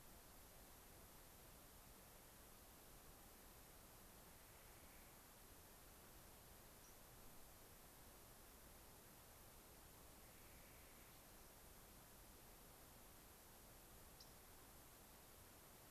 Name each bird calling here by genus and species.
Nucifraga columbiana, Passerella iliaca, Setophaga coronata